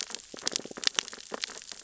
{"label": "biophony, sea urchins (Echinidae)", "recorder": "SoundTrap 600 or HydroMoth"}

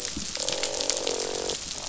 {"label": "biophony, croak", "recorder": "SoundTrap 500"}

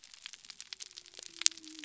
{"label": "biophony", "recorder": "SoundTrap 300"}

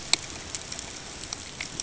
{"label": "ambient", "recorder": "HydroMoth"}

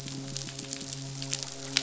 {"label": "biophony", "recorder": "SoundTrap 500"}
{"label": "biophony, midshipman", "recorder": "SoundTrap 500"}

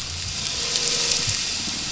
{"label": "anthrophony, boat engine", "recorder": "SoundTrap 500"}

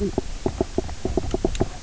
{"label": "biophony, knock croak", "recorder": "SoundTrap 300"}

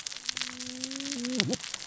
{"label": "biophony, cascading saw", "recorder": "SoundTrap 600 or HydroMoth"}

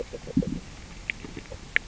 {"label": "biophony, grazing", "recorder": "SoundTrap 600 or HydroMoth"}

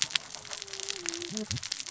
{"label": "biophony, cascading saw", "recorder": "SoundTrap 600 or HydroMoth"}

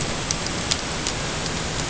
{"label": "ambient", "recorder": "HydroMoth"}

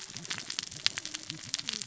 {"label": "biophony, cascading saw", "recorder": "SoundTrap 600 or HydroMoth"}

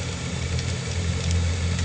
{"label": "anthrophony, boat engine", "recorder": "HydroMoth"}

